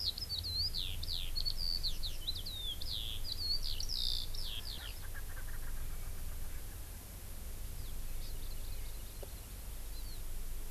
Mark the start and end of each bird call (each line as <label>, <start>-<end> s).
Eurasian Skylark (Alauda arvensis), 0.0-5.0 s
Erckel's Francolin (Pternistis erckelii), 4.4-6.6 s
Hawaii Amakihi (Chlorodrepanis virens), 8.1-9.6 s
Hawaii Amakihi (Chlorodrepanis virens), 9.9-10.2 s